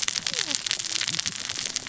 {"label": "biophony, cascading saw", "recorder": "SoundTrap 600 or HydroMoth"}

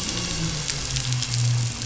{"label": "anthrophony, boat engine", "recorder": "SoundTrap 500"}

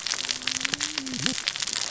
{"label": "biophony, cascading saw", "recorder": "SoundTrap 600 or HydroMoth"}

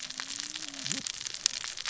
{"label": "biophony, cascading saw", "recorder": "SoundTrap 600 or HydroMoth"}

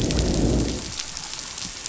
{"label": "biophony, growl", "recorder": "SoundTrap 500"}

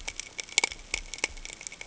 {"label": "ambient", "recorder": "HydroMoth"}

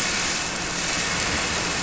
{"label": "anthrophony, boat engine", "recorder": "SoundTrap 300"}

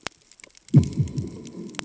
{"label": "anthrophony, bomb", "recorder": "HydroMoth"}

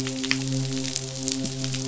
{"label": "biophony, midshipman", "recorder": "SoundTrap 500"}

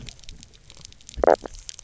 {"label": "biophony", "recorder": "SoundTrap 300"}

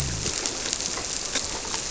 {"label": "biophony", "recorder": "SoundTrap 300"}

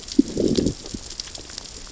{"label": "biophony, growl", "recorder": "SoundTrap 600 or HydroMoth"}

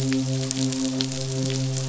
{"label": "biophony, midshipman", "recorder": "SoundTrap 500"}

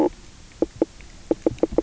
{"label": "biophony, knock croak", "recorder": "SoundTrap 300"}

